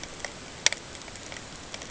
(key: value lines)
label: ambient
recorder: HydroMoth